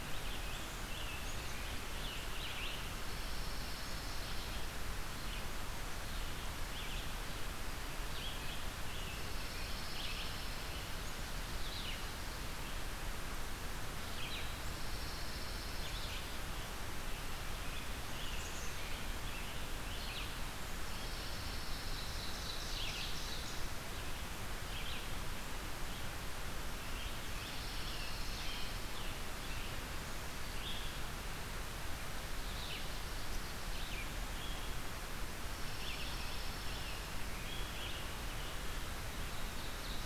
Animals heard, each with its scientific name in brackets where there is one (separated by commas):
Pine Warbler (Setophaga pinus), Red-eyed Vireo (Vireo olivaceus), Black-capped Chickadee (Poecile atricapillus), Scarlet Tanager (Piranga olivacea), Ovenbird (Seiurus aurocapilla)